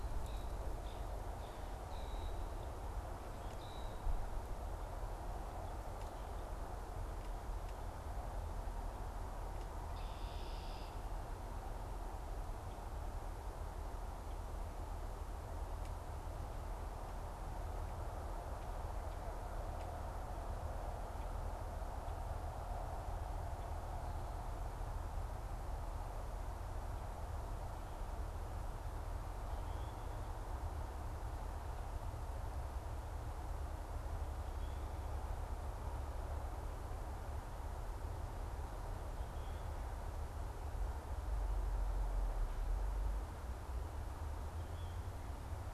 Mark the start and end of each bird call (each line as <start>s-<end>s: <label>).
0.0s-4.0s: unidentified bird
9.8s-11.2s: unidentified bird
34.5s-34.9s: unidentified bird
44.3s-45.2s: unidentified bird